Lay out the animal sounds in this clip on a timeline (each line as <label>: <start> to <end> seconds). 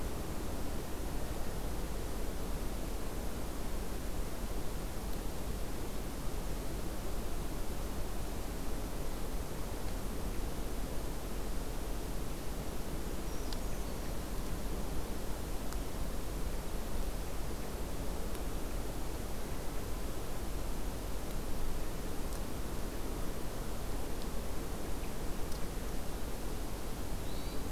Brown Creeper (Certhia americana): 13.0 to 14.2 seconds
Hermit Thrush (Catharus guttatus): 27.1 to 27.7 seconds